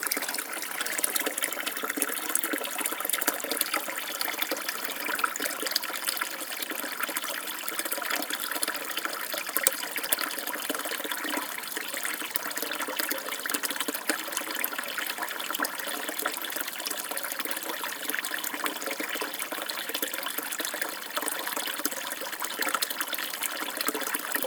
does the water continuously drip?
yes